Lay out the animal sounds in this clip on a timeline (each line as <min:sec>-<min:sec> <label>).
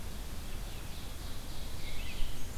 0:00.0-0:02.6 Red-eyed Vireo (Vireo olivaceus)
0:00.1-0:02.2 Ovenbird (Seiurus aurocapilla)